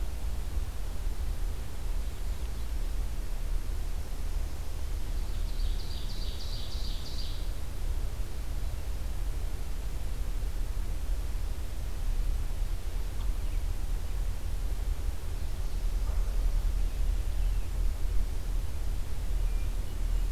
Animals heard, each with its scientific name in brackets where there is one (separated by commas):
Hermit Thrush (Catharus guttatus), Ovenbird (Seiurus aurocapilla)